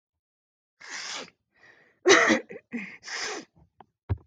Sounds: Sniff